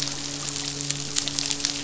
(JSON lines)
{"label": "biophony, midshipman", "recorder": "SoundTrap 500"}